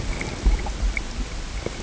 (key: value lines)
label: ambient
recorder: HydroMoth